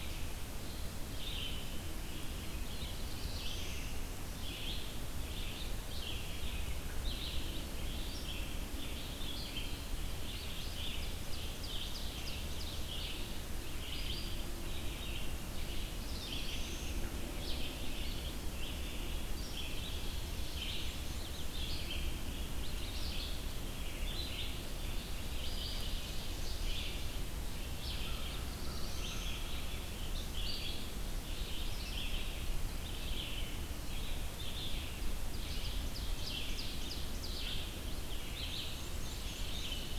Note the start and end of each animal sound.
[0.00, 39.99] Red-eyed Vireo (Vireo olivaceus)
[2.50, 4.03] Black-throated Blue Warbler (Setophaga caerulescens)
[10.33, 12.80] Ovenbird (Seiurus aurocapilla)
[15.48, 17.04] Black-throated Blue Warbler (Setophaga caerulescens)
[24.64, 26.89] Ovenbird (Seiurus aurocapilla)
[27.52, 29.37] Black-throated Blue Warbler (Setophaga caerulescens)
[35.11, 37.45] Ovenbird (Seiurus aurocapilla)
[38.12, 39.80] Black-and-white Warbler (Mniotilta varia)

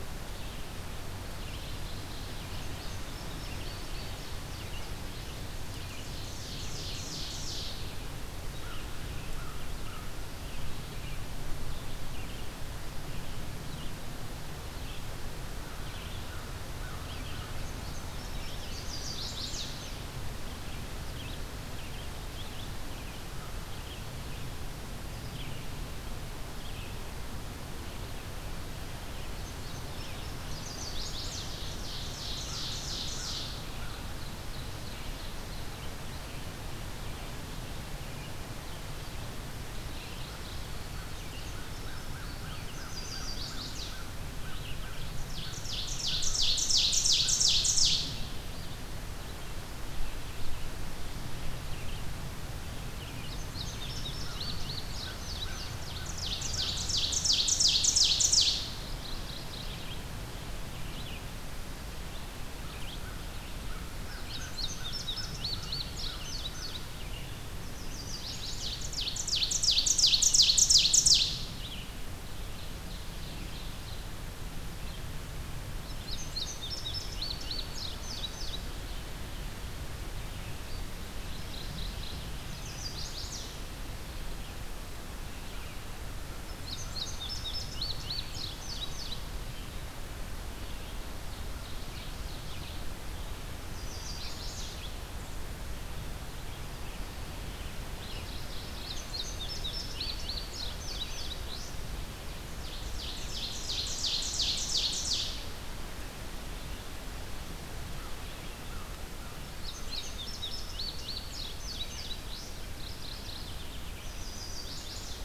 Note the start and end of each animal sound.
[0.00, 53.39] Red-eyed Vireo (Vireo olivaceus)
[1.15, 2.65] Mourning Warbler (Geothlypis philadelphia)
[2.48, 5.44] Indigo Bunting (Passerina cyanea)
[5.84, 7.94] Ovenbird (Seiurus aurocapilla)
[8.52, 10.23] American Crow (Corvus brachyrhynchos)
[16.21, 17.67] American Crow (Corvus brachyrhynchos)
[17.30, 19.95] Indigo Bunting (Passerina cyanea)
[18.58, 19.70] Chestnut-sided Warbler (Setophaga pensylvanica)
[29.28, 30.81] Indigo Bunting (Passerina cyanea)
[30.15, 31.47] Chestnut-sided Warbler (Setophaga pensylvanica)
[31.24, 35.78] Ovenbird (Seiurus aurocapilla)
[39.76, 40.63] Mourning Warbler (Geothlypis philadelphia)
[40.93, 42.86] Indigo Bunting (Passerina cyanea)
[41.77, 47.60] American Crow (Corvus brachyrhynchos)
[42.56, 44.06] Chestnut-sided Warbler (Setophaga pensylvanica)
[44.99, 48.19] Ovenbird (Seiurus aurocapilla)
[53.25, 55.84] Indigo Bunting (Passerina cyanea)
[54.12, 56.87] American Crow (Corvus brachyrhynchos)
[55.35, 58.72] Ovenbird (Seiurus aurocapilla)
[58.89, 60.03] Mourning Warbler (Geothlypis philadelphia)
[59.47, 71.92] Red-eyed Vireo (Vireo olivaceus)
[62.95, 67.11] American Crow (Corvus brachyrhynchos)
[64.03, 66.92] Indigo Bunting (Passerina cyanea)
[67.58, 68.74] Chestnut-sided Warbler (Setophaga pensylvanica)
[68.47, 71.51] Ovenbird (Seiurus aurocapilla)
[72.28, 74.11] Ovenbird (Seiurus aurocapilla)
[75.65, 78.73] Indigo Bunting (Passerina cyanea)
[81.14, 82.35] Mourning Warbler (Geothlypis philadelphia)
[82.35, 83.53] Chestnut-sided Warbler (Setophaga pensylvanica)
[86.55, 89.10] Indigo Bunting (Passerina cyanea)
[90.78, 92.81] Ovenbird (Seiurus aurocapilla)
[93.60, 94.75] Chestnut-sided Warbler (Setophaga pensylvanica)
[97.91, 98.88] Mourning Warbler (Geothlypis philadelphia)
[98.75, 101.75] Indigo Bunting (Passerina cyanea)
[102.65, 105.43] Ovenbird (Seiurus aurocapilla)
[108.64, 109.45] American Crow (Corvus brachyrhynchos)
[109.25, 112.56] Indigo Bunting (Passerina cyanea)
[112.62, 113.99] Mourning Warbler (Geothlypis philadelphia)
[113.97, 115.24] Chestnut-sided Warbler (Setophaga pensylvanica)

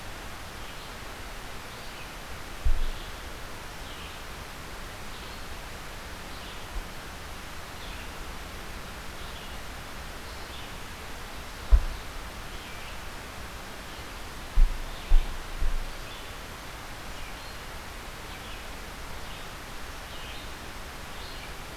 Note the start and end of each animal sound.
[0.00, 13.28] Red-eyed Vireo (Vireo olivaceus)
[14.67, 21.77] Red-eyed Vireo (Vireo olivaceus)

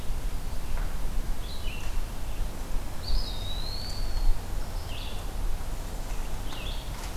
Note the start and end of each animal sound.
[0.00, 7.16] Red-eyed Vireo (Vireo olivaceus)
[2.88, 4.32] Eastern Wood-Pewee (Contopus virens)

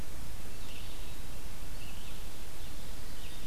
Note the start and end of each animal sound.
[0.00, 3.46] Red-eyed Vireo (Vireo olivaceus)

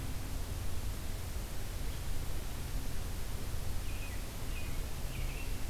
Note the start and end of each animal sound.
[3.78, 5.69] American Robin (Turdus migratorius)

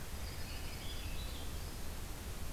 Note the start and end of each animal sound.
[0.10, 1.84] Swainson's Thrush (Catharus ustulatus)
[0.13, 1.05] Broad-winged Hawk (Buteo platypterus)
[0.20, 1.37] Dark-eyed Junco (Junco hyemalis)

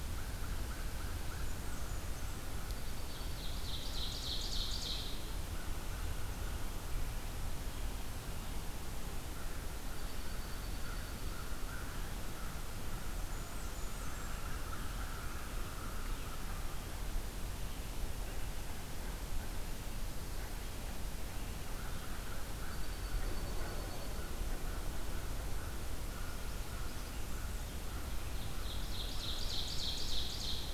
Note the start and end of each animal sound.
[0.00, 2.82] American Crow (Corvus brachyrhynchos)
[1.20, 2.61] Blackburnian Warbler (Setophaga fusca)
[2.67, 3.61] Dark-eyed Junco (Junco hyemalis)
[3.22, 5.32] Ovenbird (Seiurus aurocapilla)
[5.12, 6.71] American Crow (Corvus brachyrhynchos)
[9.15, 16.88] American Crow (Corvus brachyrhynchos)
[9.73, 11.59] Dark-eyed Junco (Junco hyemalis)
[13.18, 14.42] Blackburnian Warbler (Setophaga fusca)
[21.71, 29.58] American Crow (Corvus brachyrhynchos)
[22.44, 24.30] Dark-eyed Junco (Junco hyemalis)
[28.05, 30.73] Ovenbird (Seiurus aurocapilla)

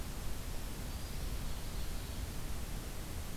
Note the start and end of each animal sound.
[0.86, 2.29] Ovenbird (Seiurus aurocapilla)

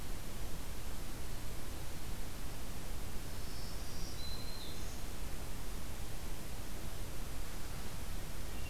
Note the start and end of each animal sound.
[2.86, 5.09] Black-throated Green Warbler (Setophaga virens)

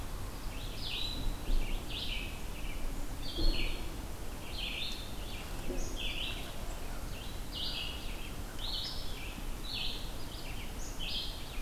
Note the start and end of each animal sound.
[0.00, 11.62] Red-eyed Vireo (Vireo olivaceus)
[5.75, 5.96] Black-capped Chickadee (Poecile atricapillus)
[10.49, 11.25] Black-capped Chickadee (Poecile atricapillus)

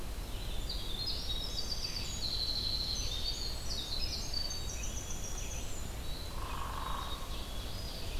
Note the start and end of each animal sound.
[0.00, 4.46] Red-eyed Vireo (Vireo olivaceus)
[0.10, 6.06] Winter Wren (Troglodytes hiemalis)
[1.23, 3.51] Ovenbird (Seiurus aurocapilla)
[4.32, 5.38] Black-capped Chickadee (Poecile atricapillus)
[5.88, 8.20] Red-eyed Vireo (Vireo olivaceus)
[6.17, 7.63] Hairy Woodpecker (Dryobates villosus)
[6.39, 8.20] Ovenbird (Seiurus aurocapilla)

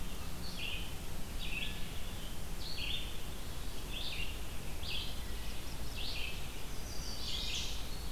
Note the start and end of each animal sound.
[0.28, 8.11] Red-eyed Vireo (Vireo olivaceus)
[5.08, 6.31] Black-throated Blue Warbler (Setophaga caerulescens)
[6.31, 7.89] Chestnut-sided Warbler (Setophaga pensylvanica)
[7.54, 8.11] Eastern Wood-Pewee (Contopus virens)

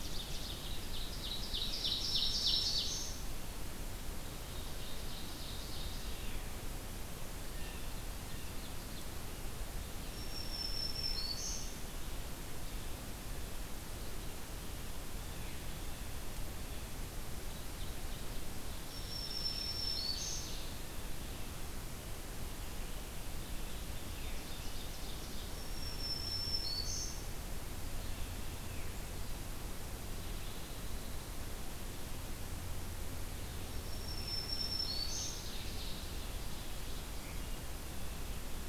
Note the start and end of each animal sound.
[0.00, 0.63] Ovenbird (Seiurus aurocapilla)
[0.00, 12.92] Red-eyed Vireo (Vireo olivaceus)
[0.90, 3.29] Ovenbird (Seiurus aurocapilla)
[4.12, 6.44] Ovenbird (Seiurus aurocapilla)
[7.30, 8.76] Blue Jay (Cyanocitta cristata)
[9.88, 11.90] Black-throated Green Warbler (Setophaga virens)
[17.42, 28.84] Red-eyed Vireo (Vireo olivaceus)
[18.63, 20.76] Ovenbird (Seiurus aurocapilla)
[18.69, 20.64] Black-throated Green Warbler (Setophaga virens)
[23.94, 25.61] Ovenbird (Seiurus aurocapilla)
[25.32, 27.43] Black-throated Green Warbler (Setophaga virens)
[29.95, 31.30] Pine Warbler (Setophaga pinus)
[33.46, 35.57] Black-throated Green Warbler (Setophaga virens)
[34.78, 36.15] Ovenbird (Seiurus aurocapilla)
[37.38, 37.78] Blue Jay (Cyanocitta cristata)

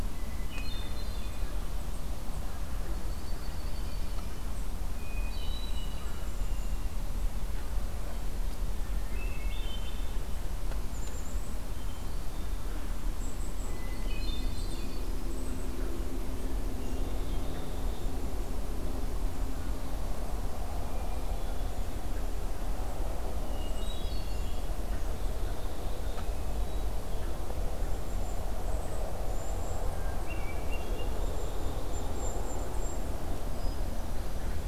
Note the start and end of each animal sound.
[0.00, 1.63] Hermit Thrush (Catharus guttatus)
[2.62, 4.27] Dark-eyed Junco (Junco hyemalis)
[4.78, 7.00] Hermit Thrush (Catharus guttatus)
[8.66, 10.23] Hermit Thrush (Catharus guttatus)
[10.82, 11.59] Golden-crowned Kinglet (Regulus satrapa)
[13.09, 15.72] Golden-crowned Kinglet (Regulus satrapa)
[13.54, 15.25] Hermit Thrush (Catharus guttatus)
[16.70, 18.16] Hermit Thrush (Catharus guttatus)
[20.76, 21.78] Hermit Thrush (Catharus guttatus)
[23.35, 24.78] Hermit Thrush (Catharus guttatus)
[25.02, 26.40] Black-capped Chickadee (Poecile atricapillus)
[26.54, 27.02] Hermit Thrush (Catharus guttatus)
[27.65, 29.86] Golden-crowned Kinglet (Regulus satrapa)
[29.99, 31.32] Hermit Thrush (Catharus guttatus)
[30.61, 32.50] Black-capped Chickadee (Poecile atricapillus)
[30.98, 33.23] Golden-crowned Kinglet (Regulus satrapa)
[33.34, 34.67] Hermit Thrush (Catharus guttatus)

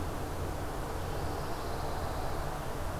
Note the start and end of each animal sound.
[0.00, 3.00] Red-eyed Vireo (Vireo olivaceus)
[0.76, 2.49] Pine Warbler (Setophaga pinus)

